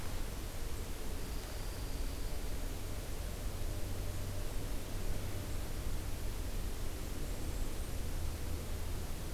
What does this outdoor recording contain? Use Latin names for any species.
Junco hyemalis, Mniotilta varia